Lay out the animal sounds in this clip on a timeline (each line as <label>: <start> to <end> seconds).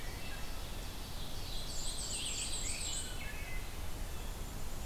Wood Thrush (Hylocichla mustelina): 0.0 to 0.5 seconds
Rose-breasted Grosbeak (Pheucticus ludovicianus): 0.0 to 4.8 seconds
Ovenbird (Seiurus aurocapilla): 0.9 to 3.2 seconds
Black-and-white Warbler (Mniotilta varia): 1.2 to 3.1 seconds
Wood Thrush (Hylocichla mustelina): 2.9 to 3.7 seconds